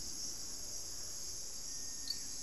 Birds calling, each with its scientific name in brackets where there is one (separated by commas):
Plumbeous Pigeon (Patagioenas plumbea)